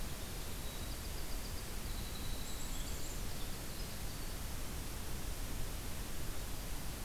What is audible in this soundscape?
Winter Wren, Black-capped Chickadee